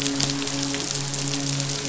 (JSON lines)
{"label": "biophony, midshipman", "recorder": "SoundTrap 500"}